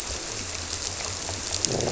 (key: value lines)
label: biophony
recorder: SoundTrap 300